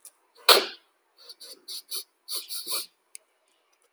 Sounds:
Sniff